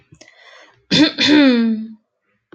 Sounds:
Throat clearing